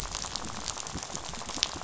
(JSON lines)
{"label": "biophony, rattle", "recorder": "SoundTrap 500"}